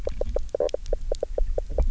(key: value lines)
label: biophony, knock croak
recorder: SoundTrap 300